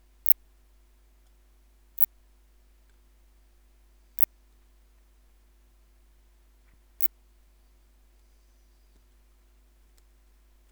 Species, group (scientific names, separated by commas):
Phaneroptera nana, Orthoptera